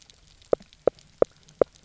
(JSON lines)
{"label": "biophony, knock croak", "recorder": "SoundTrap 300"}